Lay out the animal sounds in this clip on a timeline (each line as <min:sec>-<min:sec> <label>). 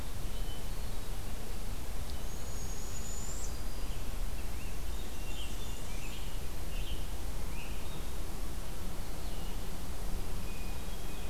0:00.1-0:01.2 Hermit Thrush (Catharus guttatus)
0:02.1-0:03.6 Barred Owl (Strix varia)
0:03.7-0:08.2 Scarlet Tanager (Piranga olivacea)
0:04.9-0:06.3 Blackburnian Warbler (Setophaga fusca)
0:10.4-0:11.3 Hermit Thrush (Catharus guttatus)